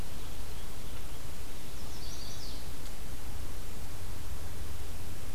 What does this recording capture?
Chestnut-sided Warbler